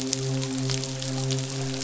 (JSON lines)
{"label": "biophony, midshipman", "recorder": "SoundTrap 500"}